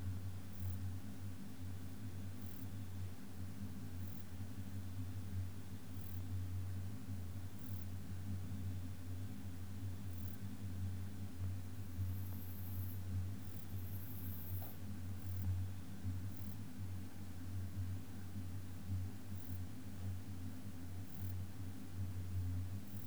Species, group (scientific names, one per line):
Rhacocleis germanica
Orthoptera